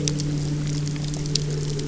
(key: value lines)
label: anthrophony, boat engine
recorder: SoundTrap 300